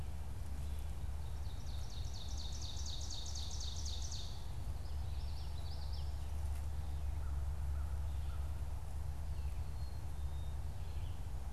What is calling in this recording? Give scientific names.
Seiurus aurocapilla, Geothlypis trichas, Poecile atricapillus